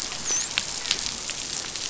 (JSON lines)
{"label": "biophony, dolphin", "recorder": "SoundTrap 500"}